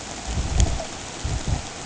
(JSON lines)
{"label": "ambient", "recorder": "HydroMoth"}